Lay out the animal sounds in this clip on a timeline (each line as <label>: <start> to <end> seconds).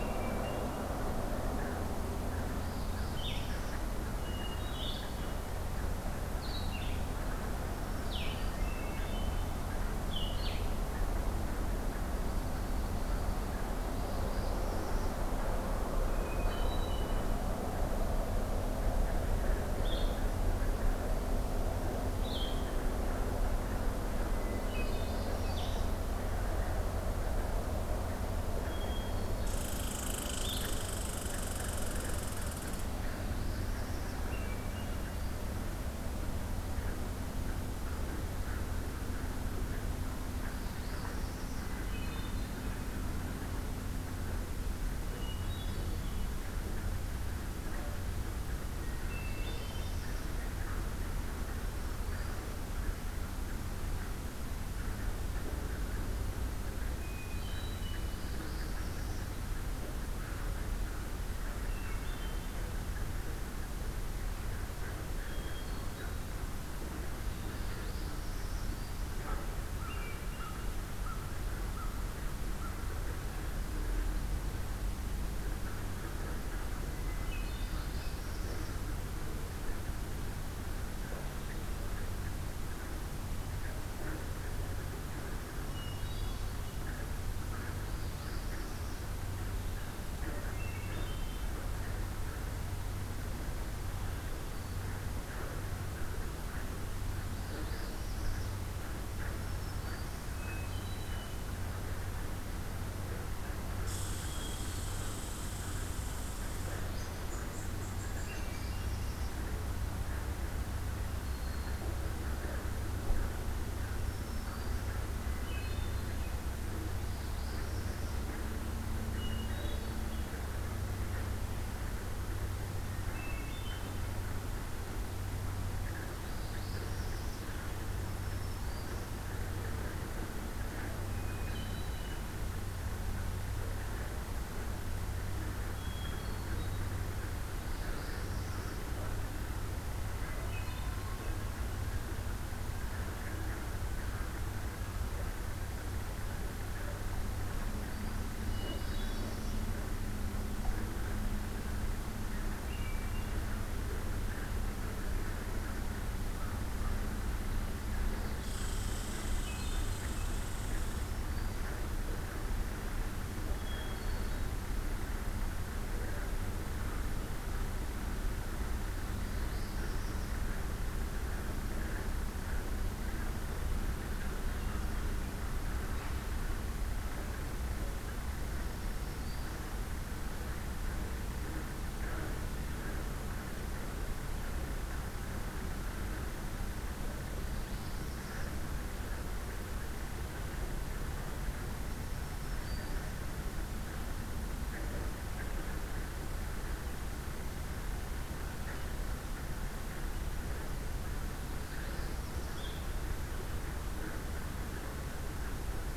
Hermit Thrush (Catharus guttatus): 0.0 to 1.0 seconds
Northern Parula (Setophaga americana): 2.6 to 3.8 seconds
Blue-headed Vireo (Vireo solitarius): 3.1 to 10.6 seconds
Hermit Thrush (Catharus guttatus): 4.2 to 5.2 seconds
Black-throated Green Warbler (Setophaga virens): 7.7 to 8.7 seconds
Hermit Thrush (Catharus guttatus): 8.5 to 9.5 seconds
Northern Parula (Setophaga americana): 13.9 to 15.1 seconds
Hermit Thrush (Catharus guttatus): 16.0 to 17.3 seconds
Blue-headed Vireo (Vireo solitarius): 19.8 to 22.7 seconds
Hermit Thrush (Catharus guttatus): 24.2 to 25.3 seconds
Northern Parula (Setophaga americana): 24.6 to 26.0 seconds
Blue-headed Vireo (Vireo solitarius): 25.4 to 25.9 seconds
Hermit Thrush (Catharus guttatus): 28.6 to 29.8 seconds
Red Squirrel (Tamiasciurus hudsonicus): 29.4 to 32.9 seconds
Blue-headed Vireo (Vireo solitarius): 30.2 to 30.7 seconds
Northern Parula (Setophaga americana): 33.2 to 34.2 seconds
Hermit Thrush (Catharus guttatus): 34.3 to 35.1 seconds
Northern Parula (Setophaga americana): 40.2 to 41.8 seconds
Hermit Thrush (Catharus guttatus): 41.5 to 42.5 seconds
Hermit Thrush (Catharus guttatus): 45.0 to 46.2 seconds
Hermit Thrush (Catharus guttatus): 48.7 to 50.0 seconds
Northern Parula (Setophaga americana): 48.9 to 50.3 seconds
Black-throated Green Warbler (Setophaga virens): 51.5 to 52.5 seconds
Hermit Thrush (Catharus guttatus): 56.9 to 58.2 seconds
Northern Parula (Setophaga americana): 58.0 to 59.3 seconds
Hermit Thrush (Catharus guttatus): 61.6 to 62.7 seconds
Hermit Thrush (Catharus guttatus): 65.2 to 66.2 seconds
Northern Parula (Setophaga americana): 67.3 to 68.8 seconds
Black-throated Green Warbler (Setophaga virens): 68.3 to 69.1 seconds
American Crow (Corvus brachyrhynchos): 69.2 to 73.0 seconds
Hermit Thrush (Catharus guttatus): 69.8 to 70.8 seconds
Hermit Thrush (Catharus guttatus): 77.1 to 78.1 seconds
Northern Parula (Setophaga americana): 77.4 to 78.8 seconds
Hermit Thrush (Catharus guttatus): 85.6 to 86.6 seconds
Northern Parula (Setophaga americana): 87.7 to 89.1 seconds
Hermit Thrush (Catharus guttatus): 90.5 to 91.5 seconds
Northern Parula (Setophaga americana): 97.0 to 98.6 seconds
Black-throated Green Warbler (Setophaga virens): 99.0 to 100.4 seconds
Hermit Thrush (Catharus guttatus): 100.3 to 101.5 seconds
Red Squirrel (Tamiasciurus hudsonicus): 103.8 to 108.4 seconds
Hermit Thrush (Catharus guttatus): 104.1 to 105.0 seconds
Hermit Thrush (Catharus guttatus): 108.2 to 109.1 seconds
Northern Parula (Setophaga americana): 108.4 to 109.4 seconds
Black-throated Green Warbler (Setophaga virens): 111.2 to 111.8 seconds
Black-throated Green Warbler (Setophaga virens): 113.8 to 115.0 seconds
Hermit Thrush (Catharus guttatus): 115.1 to 116.3 seconds
Northern Parula (Setophaga americana): 116.9 to 118.2 seconds
Hermit Thrush (Catharus guttatus): 119.1 to 120.3 seconds
Hermit Thrush (Catharus guttatus): 122.9 to 124.1 seconds
Northern Parula (Setophaga americana): 126.1 to 127.5 seconds
Black-throated Green Warbler (Setophaga virens): 127.9 to 129.1 seconds
Hermit Thrush (Catharus guttatus): 131.0 to 132.3 seconds
Hermit Thrush (Catharus guttatus): 135.7 to 136.9 seconds
Northern Parula (Setophaga americana): 137.6 to 138.9 seconds
Hermit Thrush (Catharus guttatus): 140.2 to 141.1 seconds
Black-throated Green Warbler (Setophaga virens): 147.4 to 148.3 seconds
Hermit Thrush (Catharus guttatus): 148.4 to 149.5 seconds
Northern Parula (Setophaga americana): 148.5 to 149.7 seconds
Hermit Thrush (Catharus guttatus): 152.6 to 153.4 seconds
Red Squirrel (Tamiasciurus hudsonicus): 158.4 to 161.1 seconds
Hermit Thrush (Catharus guttatus): 159.2 to 160.0 seconds
Black-throated Green Warbler (Setophaga virens): 160.6 to 161.8 seconds
Hermit Thrush (Catharus guttatus): 163.6 to 164.5 seconds
Northern Parula (Setophaga americana): 169.1 to 170.3 seconds
Black-throated Green Warbler (Setophaga virens): 178.4 to 179.7 seconds
Northern Parula (Setophaga americana): 187.3 to 188.5 seconds
Black-throated Green Warbler (Setophaga virens): 191.8 to 193.1 seconds
Northern Parula (Setophaga americana): 201.4 to 202.7 seconds